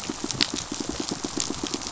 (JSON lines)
{"label": "biophony, pulse", "recorder": "SoundTrap 500"}